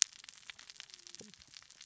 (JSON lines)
{"label": "biophony, cascading saw", "recorder": "SoundTrap 600 or HydroMoth"}